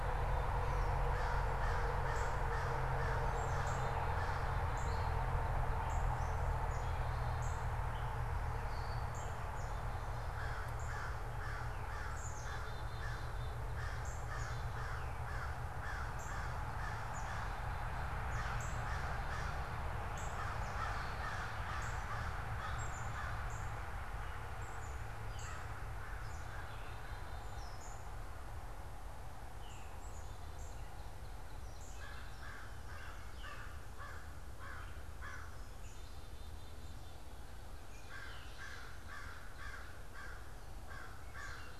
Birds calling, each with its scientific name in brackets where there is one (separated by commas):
Black-capped Chickadee (Poecile atricapillus), Northern Cardinal (Cardinalis cardinalis), Gray Catbird (Dumetella carolinensis), Veery (Catharus fuscescens), American Crow (Corvus brachyrhynchos)